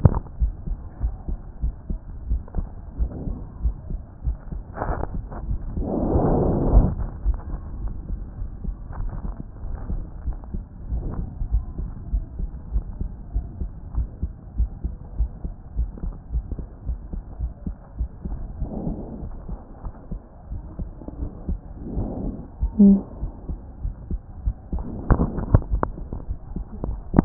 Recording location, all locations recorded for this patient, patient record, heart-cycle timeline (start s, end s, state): pulmonary valve (PV)
aortic valve (AV)+pulmonary valve (PV)+tricuspid valve (TV)+mitral valve (MV)
#Age: Child
#Sex: Male
#Height: 133.0 cm
#Weight: 27.6 kg
#Pregnancy status: False
#Murmur: Absent
#Murmur locations: nan
#Most audible location: nan
#Systolic murmur timing: nan
#Systolic murmur shape: nan
#Systolic murmur grading: nan
#Systolic murmur pitch: nan
#Systolic murmur quality: nan
#Diastolic murmur timing: nan
#Diastolic murmur shape: nan
#Diastolic murmur grading: nan
#Diastolic murmur pitch: nan
#Diastolic murmur quality: nan
#Outcome: Normal
#Campaign: 2014 screening campaign
0.00	11.52	unannotated
11.52	11.64	S1
11.64	11.80	systole
11.80	11.88	S2
11.88	12.12	diastole
12.12	12.24	S1
12.24	12.40	systole
12.40	12.50	S2
12.50	12.74	diastole
12.74	12.84	S1
12.84	13.00	systole
13.00	13.10	S2
13.10	13.34	diastole
13.34	13.46	S1
13.46	13.60	systole
13.60	13.70	S2
13.70	13.96	diastole
13.96	14.08	S1
14.08	14.22	systole
14.22	14.32	S2
14.32	14.58	diastole
14.58	14.70	S1
14.70	14.84	systole
14.84	14.94	S2
14.94	15.18	diastole
15.18	15.30	S1
15.30	15.44	systole
15.44	15.52	S2
15.52	15.76	diastole
15.76	15.90	S1
15.90	16.04	systole
16.04	16.14	S2
16.14	16.34	diastole
16.34	27.25	unannotated